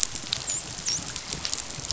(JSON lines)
{"label": "biophony, dolphin", "recorder": "SoundTrap 500"}